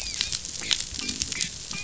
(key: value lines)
label: biophony, dolphin
recorder: SoundTrap 500

label: biophony
recorder: SoundTrap 500